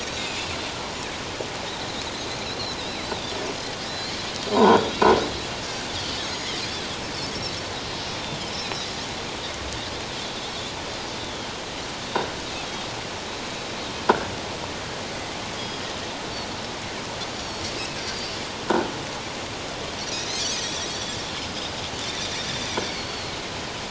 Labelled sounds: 2.8	3.2	Pacific white-sided dolphin, 2.0 to 4.2 kHz
3.8	4.9	Pacific white-sided dolphin, 0.81 to 4.9 kHz
4.6	4.9	croaking sound likely from a nearby submerged object, 1.3 to 3.9 kHz
6.2	6.6	Pacific white-sided dolphin, 6.2 to 6.8 kHz
7.9	8.9	Pacific white-sided dolphin, 3.8 to 4.8 kHz
11.2	11.5	Pacific white-sided dolphin, 3.1 to 3.6 kHz
12.6	12.8	Pacific white-sided dolphin, 3.2 to 3.7 kHz
13.7	13.9	Pacific white-sided dolphin, 3.7 to 3.9 kHz
15.6	15.8	Pacific white-sided dolphin, 4.8 to 5.0 kHz
18.0	18.3	Pacific white-sided dolphin, 4.5 to 4.8 kHz
20.6	20.9	Pacific white-sided dolphin, 3.2 to 6.2 kHz
21.4	21.7	Pacific white-sided dolphin, 4.8 to 5.3 kHz
22.1	23.4	Pacific white-sided dolphin, 3.4 to 4.7 kHz

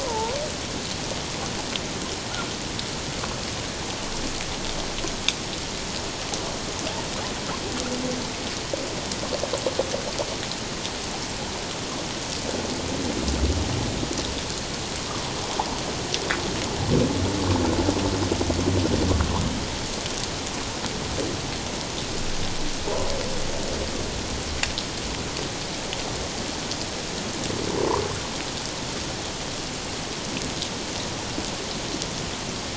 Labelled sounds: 0.0	0.4	humpback whale, 0.81 to 1.1 kHz

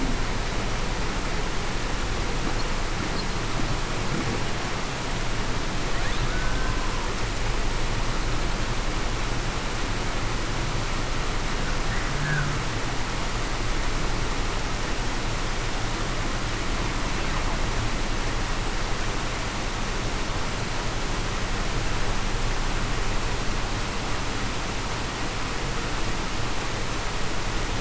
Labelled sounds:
6.3	6.7	killer whale, Bigg's (transient), 1.4 to 1.6 kHz

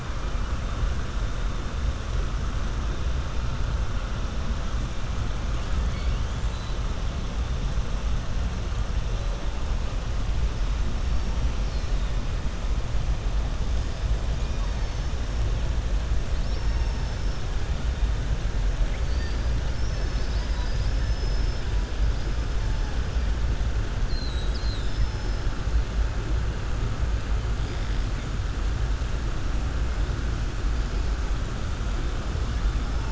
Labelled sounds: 5.8	6.3	killer whale, southern resident, 1.8 to 5.3 kHz
19.0	19.4	killer whale, southern resident, 3.6 to 5.1 kHz
24.0	25.4	killer whale, southern resident, 3.5 to 5.3 kHz

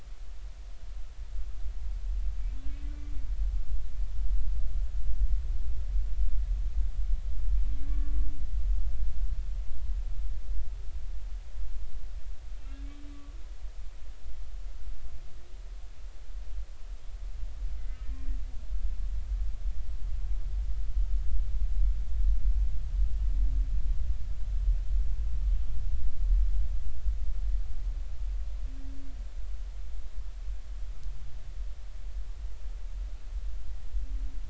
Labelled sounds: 7.7	8.1	humpback whale, 1.1 to 2.3 kHz
12.6	13.4	humpback whale, 1.1 to 2.8 kHz
18.1	18.4	humpback whale, 1.8 to 1.9 kHz

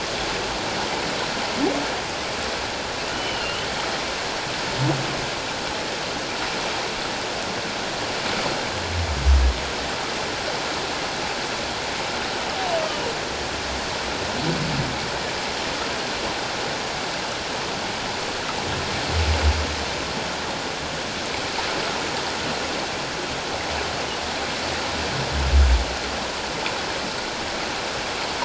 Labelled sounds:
3.1	3.7	humpback whale, 2.7 to 3.1 kHz

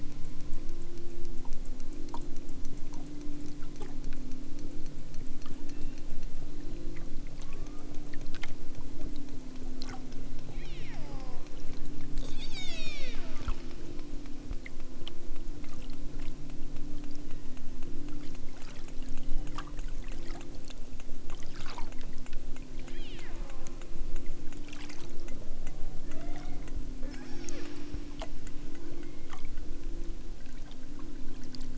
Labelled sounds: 5.7	6.1	killer whale, southern Alaska resident, 1.3 to 3.9 kHz
7.3	8.1	killer whale, southern Alaska resident, 0.64 to 2.7 kHz
10.4	11.1	killer whale, southern Alaska resident, 1.5 to 5.6 kHz
12.1	13.4	killer whale, southern Alaska resident, 0.64 to 8.0 kHz
17.3	17.7	killer whale, southern Alaska resident, 1.3 to 3.6 kHz
19.1	19.7	killer whale, southern Alaska resident, 1.4 to 3.2 kHz
22.8	23.4	killer whale, southern Alaska resident, 1.3 to 5.0 kHz
25.7	26.6	killer whale, southern Alaska resident, 0.50 to 4.7 kHz
27.1	27.7	killer whale, southern Alaska resident, 0.78 to 6.9 kHz
28.9	29.5	killer whale, southern Alaska resident, 0.97 to 2.7 kHz

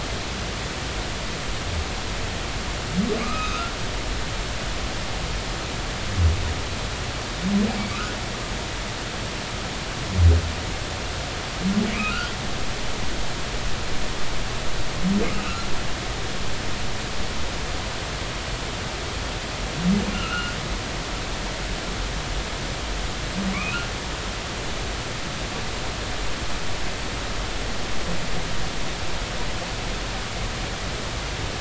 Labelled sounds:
3.2	3.7	humpback whale, 1.1 to 2.8 kHz
11.9	12.3	humpback whale, 1.2 to 2.6 kHz
15.4	15.7	humpback whale, 1.2 to 1.5 kHz
20.1	20.6	humpback whale, 1.2 to 2.9 kHz
23.5	23.9	humpback whale, 2.0 to 2.9 kHz

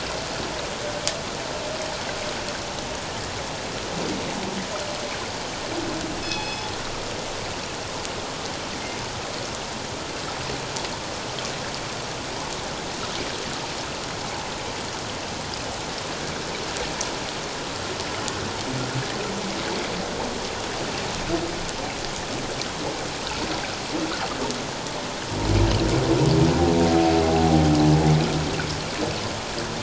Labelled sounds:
6.2	6.7	killer whale, northern resident, G clan, call N24ii, 2.5 to 5.2 kHz

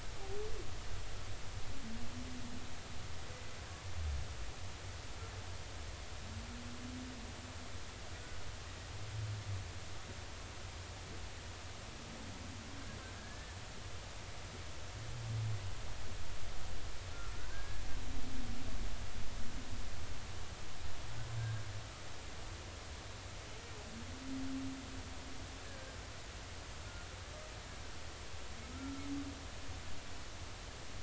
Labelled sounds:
13.2	13.6	humpback whale, 1.6 to 1.8 kHz
17.3	17.8	humpback whale, 1.4 to 1.7 kHz
25.7	26.0	humpback whale, 1.5 to 1.8 kHz
28.7	29.1	humpback whale, 1.2 to 1.4 kHz

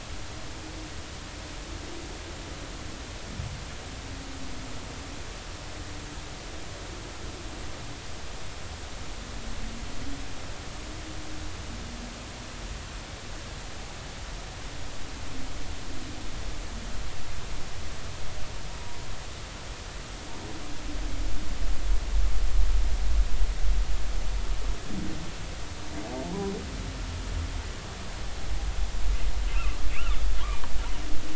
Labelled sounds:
29.5	30.1	humpback whale, 2.2 to 3.0 kHz

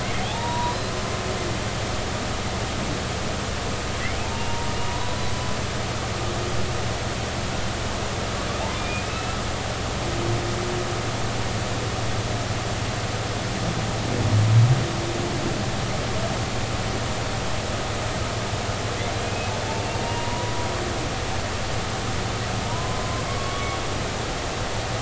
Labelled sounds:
0.0	0.8	humpback whale, 0.80 to 3.8 kHz
4.2	5.2	humpback whale, 0.83 to 1.1 kHz
8.8	9.4	humpback whale, 2.3 to 2.7 kHz
19.2	20.5	humpback whale, 0.90 to 2.9 kHz
22.6	23.8	humpback whale, 0.86 to 1.2 kHz

